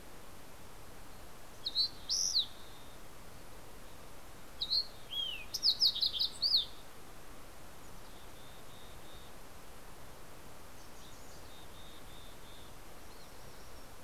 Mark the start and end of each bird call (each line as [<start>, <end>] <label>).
[1.40, 2.80] Fox Sparrow (Passerella iliaca)
[4.20, 7.10] Fox Sparrow (Passerella iliaca)
[7.50, 9.50] Mountain Chickadee (Poecile gambeli)
[10.50, 12.80] Mountain Chickadee (Poecile gambeli)